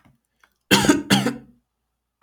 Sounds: Cough